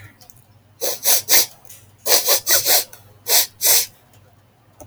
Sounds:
Sniff